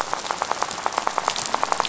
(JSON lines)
{"label": "biophony, rattle", "recorder": "SoundTrap 500"}